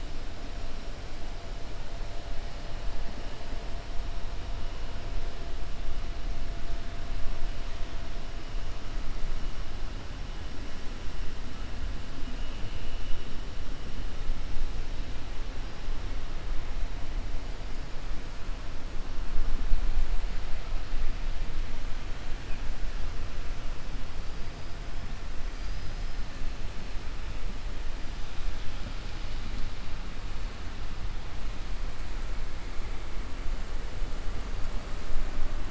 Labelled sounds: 25.5	26.2	killer whale, 4.3 to 5.7 kHz

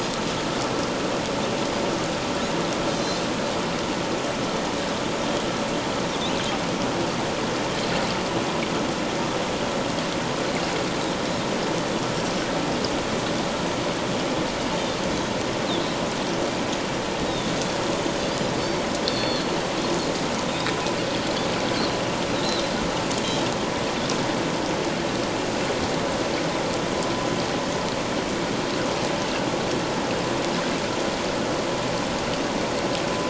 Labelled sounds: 2.8	3.2	Pacific white-sided dolphin, 4.0 to 6.3 kHz
18.6	19.5	Pacific white-sided dolphin, 3.4 to 4.7 kHz
22.4	22.7	Pacific white-sided dolphin, 3.7 to 4.2 kHz

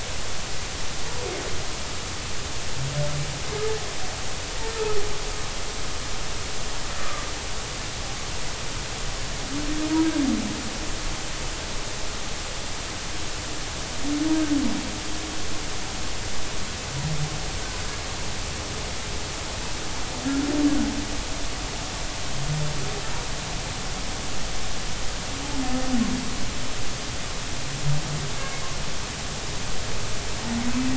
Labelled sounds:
7.0	7.2	humpback whale, 1.1 to 1.3 kHz

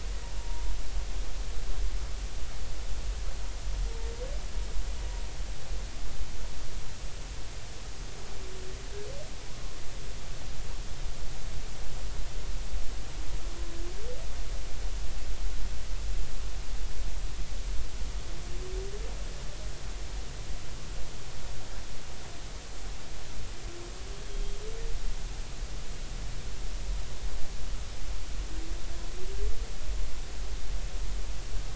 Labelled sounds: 0.4	0.6	humpback whale, 0.90 to 0.99 kHz
24.3	24.6	humpback whale, 3.2 to 3.3 kHz

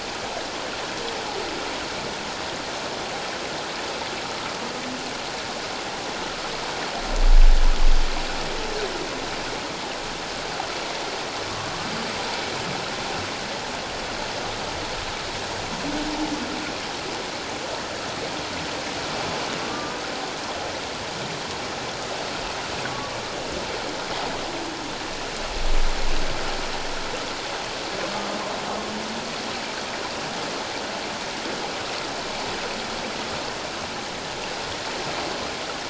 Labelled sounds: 19.7	20.0	humpback whale, 1.1 to 1.2 kHz

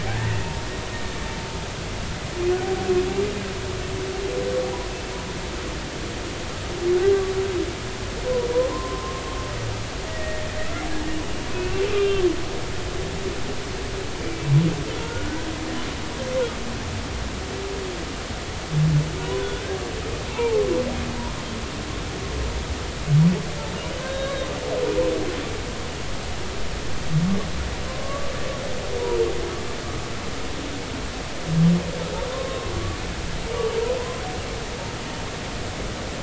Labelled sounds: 0.1	0.5	humpback whale, 0.86 to 2.0 kHz
8.7	9.2	humpback whale, 0.93 to 1.1 kHz
10.0	10.6	humpback whale, 1.8 to 2.0 kHz
11.9	12.2	humpback whale, 2.6 to 3.7 kHz
15.0	15.3	humpback whale, 1.3 to 1.5 kHz
19.2	19.8	humpback whale, 0.93 to 3.6 kHz
20.3	20.6	humpback whale, 0.83 to 1.0 kHz
24.0	24.5	humpback whale, 1.5 to 3.9 kHz
28.0	28.3	humpback whale, 1.0 to 1.2 kHz
32.3	32.7	humpback whale, 0.99 to 1.1 kHz
34.0	34.2	humpback whale, 0.96 to 1.1 kHz

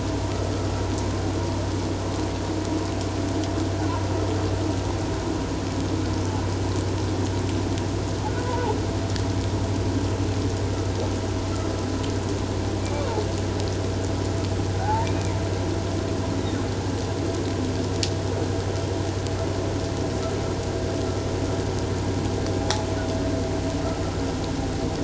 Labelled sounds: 8.4	8.7	humpback whale, 0.78 to 1.1 kHz
12.8	13.1	humpback whale, 2.2 to 2.4 kHz
14.8	15.4	humpback whale, 0.78 to 2.5 kHz
22.6	22.9	humpback whale, 0.78 to 0.91 kHz

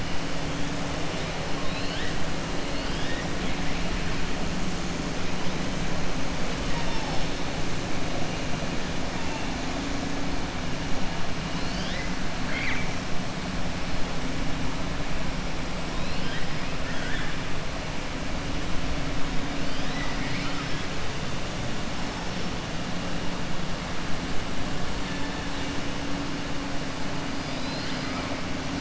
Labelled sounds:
2.7	3.2	killer whale, 1.7 to 5.2 kHz
12.4	12.9	killer whale, 0.94 to 4.6 kHz
15.9	16.5	killer whale, 1.6 to 5.1 kHz
19.6	20.8	killer whale, 1.2 to 5.6 kHz
27.3	28.3	killer whale, 1.1 to 5.2 kHz

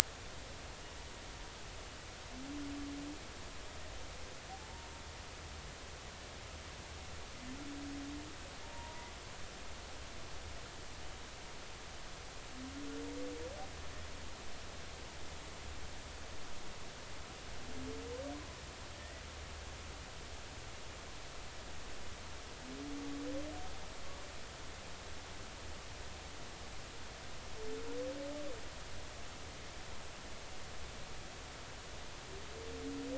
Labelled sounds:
4.6	4.9	humpback whale, 0.83 to 0.99 kHz
8.6	9.1	humpback whale, 0.86 to 0.99 kHz
19.0	19.2	humpback whale, 1.8 to 2.0 kHz

